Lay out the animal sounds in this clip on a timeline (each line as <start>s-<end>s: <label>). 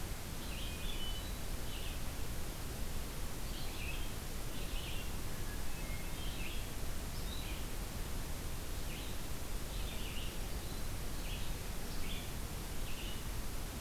0.0s-13.8s: Red-eyed Vireo (Vireo olivaceus)
0.4s-1.5s: Hermit Thrush (Catharus guttatus)
5.3s-6.7s: Hermit Thrush (Catharus guttatus)